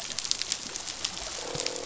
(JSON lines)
{"label": "biophony, croak", "recorder": "SoundTrap 500"}